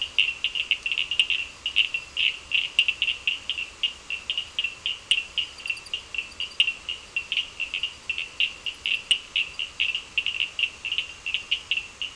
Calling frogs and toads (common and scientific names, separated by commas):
Cochran's lime tree frog (Sphaenorhynchus surdus)